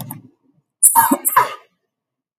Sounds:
Cough